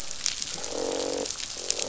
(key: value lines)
label: biophony, croak
recorder: SoundTrap 500